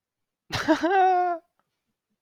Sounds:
Laughter